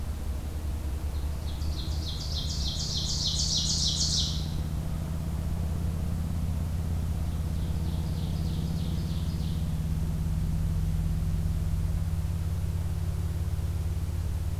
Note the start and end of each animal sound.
[1.26, 4.59] Ovenbird (Seiurus aurocapilla)
[7.20, 9.72] Ovenbird (Seiurus aurocapilla)

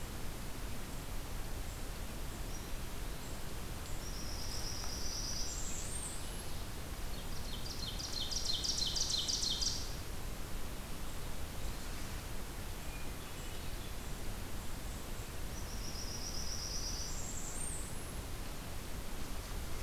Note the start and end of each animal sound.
[3.91, 6.55] Blackburnian Warbler (Setophaga fusca)
[7.22, 9.84] Ovenbird (Seiurus aurocapilla)
[12.65, 14.07] Hermit Thrush (Catharus guttatus)
[15.51, 18.17] Blackburnian Warbler (Setophaga fusca)

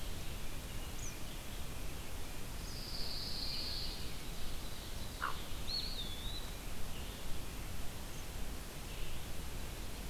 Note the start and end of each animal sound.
[0.96, 1.18] Eastern Kingbird (Tyrannus tyrannus)
[2.50, 4.23] Pine Warbler (Setophaga pinus)
[4.12, 5.66] Ovenbird (Seiurus aurocapilla)
[5.03, 10.09] Red-eyed Vireo (Vireo olivaceus)
[5.05, 5.69] Hooded Merganser (Lophodytes cucullatus)
[5.39, 6.59] Eastern Wood-Pewee (Contopus virens)
[8.11, 8.39] Eastern Kingbird (Tyrannus tyrannus)

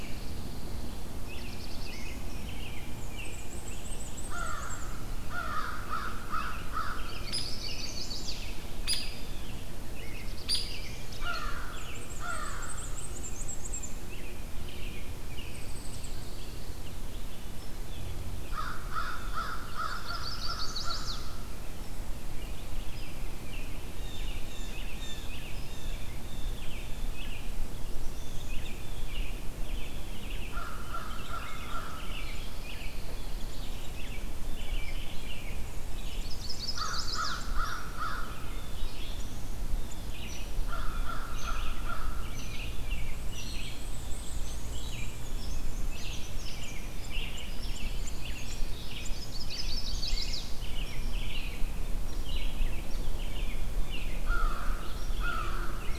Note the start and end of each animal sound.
[0.00, 1.24] Pine Warbler (Setophaga pinus)
[1.06, 2.22] Black-throated Blue Warbler (Setophaga caerulescens)
[1.14, 4.12] American Robin (Turdus migratorius)
[3.00, 4.93] Black-and-white Warbler (Mniotilta varia)
[4.11, 7.16] American Crow (Corvus brachyrhynchos)
[6.25, 12.13] American Robin (Turdus migratorius)
[7.05, 8.40] Chestnut-sided Warbler (Setophaga pensylvanica)
[7.28, 7.52] Hairy Woodpecker (Dryobates villosus)
[8.76, 9.04] Hairy Woodpecker (Dryobates villosus)
[9.87, 11.07] Black-throated Blue Warbler (Setophaga caerulescens)
[10.40, 10.68] Hairy Woodpecker (Dryobates villosus)
[11.07, 12.69] American Crow (Corvus brachyrhynchos)
[11.66, 14.02] Black-and-white Warbler (Mniotilta varia)
[13.66, 15.76] American Robin (Turdus migratorius)
[15.29, 16.93] Pine Warbler (Setophaga pinus)
[17.56, 17.75] Hairy Woodpecker (Dryobates villosus)
[18.45, 21.35] American Crow (Corvus brachyrhynchos)
[19.82, 21.27] Chestnut-sided Warbler (Setophaga pensylvanica)
[22.52, 27.73] American Robin (Turdus migratorius)
[22.85, 23.10] Hairy Woodpecker (Dryobates villosus)
[23.80, 27.19] Blue Jay (Cyanocitta cristata)
[27.70, 28.63] Black-throated Blue Warbler (Setophaga caerulescens)
[28.07, 30.06] Blue Jay (Cyanocitta cristata)
[28.19, 33.06] American Robin (Turdus migratorius)
[30.50, 32.20] American Crow (Corvus brachyrhynchos)
[32.37, 33.83] Pine Warbler (Setophaga pinus)
[33.40, 36.25] American Robin (Turdus migratorius)
[34.57, 55.99] Red-eyed Vireo (Vireo olivaceus)
[36.07, 37.37] Chestnut-sided Warbler (Setophaga pensylvanica)
[36.59, 38.34] American Crow (Corvus brachyrhynchos)
[37.56, 37.78] Hairy Woodpecker (Dryobates villosus)
[38.44, 40.11] Blue Jay (Cyanocitta cristata)
[38.46, 39.45] Black-throated Blue Warbler (Setophaga caerulescens)
[40.21, 40.46] Hairy Woodpecker (Dryobates villosus)
[40.55, 42.27] American Crow (Corvus brachyrhynchos)
[41.32, 41.57] Hairy Woodpecker (Dryobates villosus)
[42.30, 42.52] Hairy Woodpecker (Dryobates villosus)
[42.53, 44.30] Blue Jay (Cyanocitta cristata)
[42.93, 46.88] Black-and-white Warbler (Mniotilta varia)
[43.30, 43.50] Hairy Woodpecker (Dryobates villosus)
[44.40, 44.62] Hairy Woodpecker (Dryobates villosus)
[45.32, 45.52] Hairy Woodpecker (Dryobates villosus)
[45.91, 51.69] American Robin (Turdus migratorius)
[46.40, 46.56] Hairy Woodpecker (Dryobates villosus)
[47.54, 47.70] Hairy Woodpecker (Dryobates villosus)
[47.68, 49.11] Pine Warbler (Setophaga pinus)
[48.37, 48.60] Hairy Woodpecker (Dryobates villosus)
[48.90, 50.51] Chestnut-sided Warbler (Setophaga pensylvanica)
[50.82, 51.00] Hairy Woodpecker (Dryobates villosus)
[52.06, 52.26] Hairy Woodpecker (Dryobates villosus)
[52.52, 54.40] American Robin (Turdus migratorius)
[54.07, 55.88] American Crow (Corvus brachyrhynchos)
[54.92, 55.12] Hairy Woodpecker (Dryobates villosus)

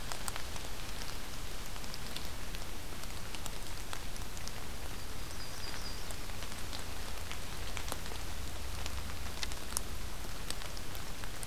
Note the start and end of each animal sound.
[4.83, 6.15] Yellow-rumped Warbler (Setophaga coronata)

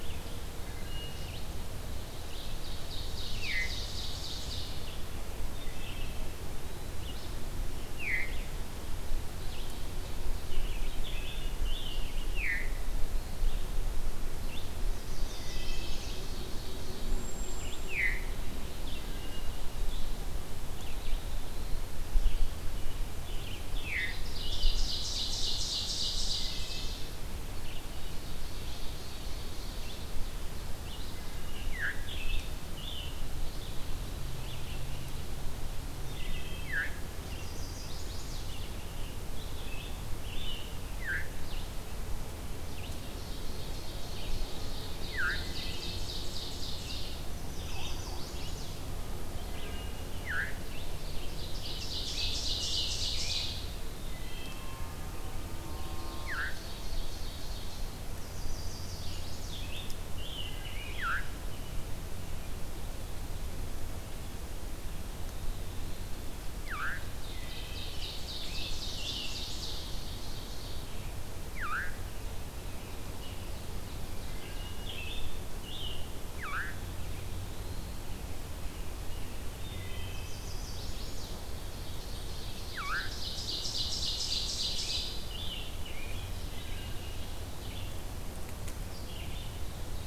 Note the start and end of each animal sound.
[0.04, 28.12] Red-eyed Vireo (Vireo olivaceus)
[0.59, 1.16] Wood Thrush (Hylocichla mustelina)
[2.04, 4.96] Ovenbird (Seiurus aurocapilla)
[3.26, 3.84] Veery (Catharus fuscescens)
[5.48, 6.18] Wood Thrush (Hylocichla mustelina)
[7.80, 8.54] Veery (Catharus fuscescens)
[12.06, 12.80] Veery (Catharus fuscescens)
[14.82, 16.20] Chestnut-sided Warbler (Setophaga pensylvanica)
[15.04, 17.30] Ovenbird (Seiurus aurocapilla)
[15.16, 16.13] Wood Thrush (Hylocichla mustelina)
[16.96, 18.10] Cedar Waxwing (Bombycilla cedrorum)
[17.74, 18.65] Veery (Catharus fuscescens)
[19.03, 19.69] Wood Thrush (Hylocichla mustelina)
[23.73, 24.31] Veery (Catharus fuscescens)
[24.29, 27.15] Ovenbird (Seiurus aurocapilla)
[26.23, 27.09] Wood Thrush (Hylocichla mustelina)
[27.86, 30.13] Ovenbird (Seiurus aurocapilla)
[30.30, 35.13] Red-eyed Vireo (Vireo olivaceus)
[31.26, 33.29] Scarlet Tanager (Piranga olivacea)
[31.49, 32.16] Veery (Catharus fuscescens)
[36.08, 36.71] Wood Thrush (Hylocichla mustelina)
[36.47, 37.02] Veery (Catharus fuscescens)
[37.14, 38.50] Chestnut-sided Warbler (Setophaga pensylvanica)
[38.31, 40.78] Scarlet Tanager (Piranga olivacea)
[40.84, 41.25] Veery (Catharus fuscescens)
[42.70, 47.40] Ovenbird (Seiurus aurocapilla)
[44.85, 45.48] Veery (Catharus fuscescens)
[47.38, 48.75] Chestnut-sided Warbler (Setophaga pensylvanica)
[49.32, 50.07] Wood Thrush (Hylocichla mustelina)
[50.09, 50.70] Veery (Catharus fuscescens)
[50.72, 53.75] Ovenbird (Seiurus aurocapilla)
[51.61, 53.66] Scarlet Tanager (Piranga olivacea)
[54.20, 55.02] Wood Thrush (Hylocichla mustelina)
[55.62, 58.03] Ovenbird (Seiurus aurocapilla)
[56.05, 56.67] Veery (Catharus fuscescens)
[58.16, 59.80] Chestnut-sided Warbler (Setophaga pensylvanica)
[59.51, 61.19] Red-eyed Vireo (Vireo olivaceus)
[60.88, 61.39] Veery (Catharus fuscescens)
[66.56, 67.12] Veery (Catharus fuscescens)
[67.20, 70.95] Ovenbird (Seiurus aurocapilla)
[67.25, 67.99] Wood Thrush (Hylocichla mustelina)
[68.06, 69.69] Scarlet Tanager (Piranga olivacea)
[71.42, 71.99] Veery (Catharus fuscescens)
[72.86, 74.91] Ovenbird (Seiurus aurocapilla)
[74.37, 76.13] Scarlet Tanager (Piranga olivacea)
[76.28, 76.89] Veery (Catharus fuscescens)
[79.59, 80.35] Wood Thrush (Hylocichla mustelina)
[80.01, 81.40] Chestnut-sided Warbler (Setophaga pensylvanica)
[81.58, 85.38] Ovenbird (Seiurus aurocapilla)
[84.25, 86.42] Scarlet Tanager (Piranga olivacea)
[85.25, 90.07] Red-eyed Vireo (Vireo olivaceus)
[86.40, 87.22] Wood Thrush (Hylocichla mustelina)

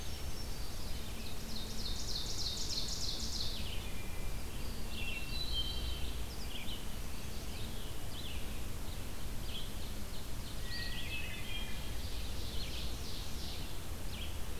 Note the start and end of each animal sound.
[0.00, 0.61] Hermit Thrush (Catharus guttatus)
[0.00, 9.78] Red-eyed Vireo (Vireo olivaceus)
[1.09, 3.58] Ovenbird (Seiurus aurocapilla)
[3.42, 6.17] Hermit Thrush (Catharus guttatus)
[6.79, 7.74] Chestnut-sided Warbler (Setophaga pensylvanica)
[9.88, 11.32] Ovenbird (Seiurus aurocapilla)
[10.58, 14.59] Red-eyed Vireo (Vireo olivaceus)
[10.83, 11.98] Hermit Thrush (Catharus guttatus)
[11.74, 13.74] Ovenbird (Seiurus aurocapilla)

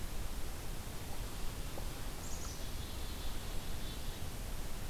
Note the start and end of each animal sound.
[2.12, 4.36] Black-capped Chickadee (Poecile atricapillus)

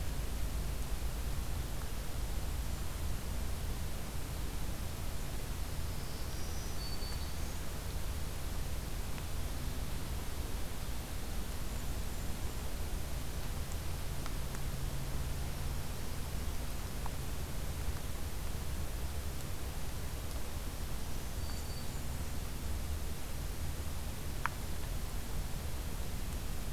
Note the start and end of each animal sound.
[5.77, 7.64] Black-throated Green Warbler (Setophaga virens)
[11.25, 12.73] Blackburnian Warbler (Setophaga fusca)
[20.86, 21.94] Black-throated Green Warbler (Setophaga virens)
[21.03, 22.20] Blackburnian Warbler (Setophaga fusca)

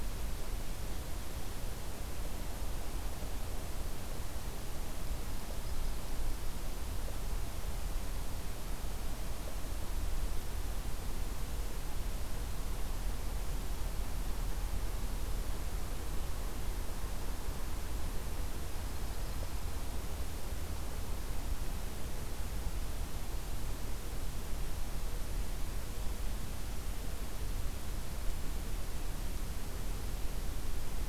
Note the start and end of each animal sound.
[5.06, 6.41] Yellow-rumped Warbler (Setophaga coronata)
[18.70, 20.08] Yellow-rumped Warbler (Setophaga coronata)

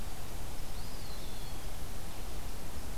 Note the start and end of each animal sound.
[0.57, 1.68] Eastern Wood-Pewee (Contopus virens)

